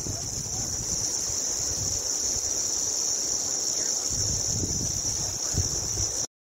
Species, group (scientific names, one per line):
Arunta perulata
Cicadidae